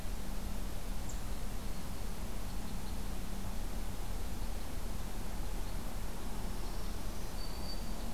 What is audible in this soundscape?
Black-throated Green Warbler, Red Crossbill